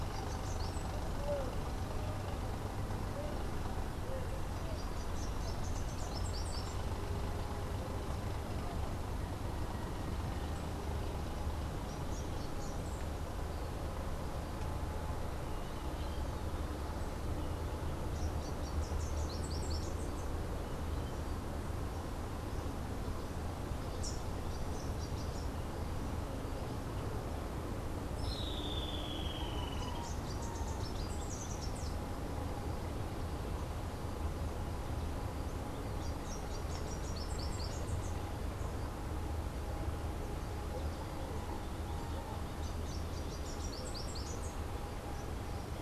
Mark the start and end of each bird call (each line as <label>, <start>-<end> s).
Rufous-capped Warbler (Basileuterus rufifrons), 4.8-6.9 s
Rufous-capped Warbler (Basileuterus rufifrons), 17.9-20.1 s
Rufous-capped Warbler (Basileuterus rufifrons), 23.8-25.6 s
Streak-headed Woodcreeper (Lepidocolaptes souleyetii), 28.0-30.1 s
Rufous-capped Warbler (Basileuterus rufifrons), 30.1-32.0 s
Rufous-capped Warbler (Basileuterus rufifrons), 35.7-38.2 s
Rufous-capped Warbler (Basileuterus rufifrons), 42.3-44.7 s